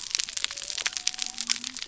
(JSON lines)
{"label": "biophony", "recorder": "SoundTrap 300"}